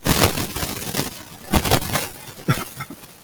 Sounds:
Cough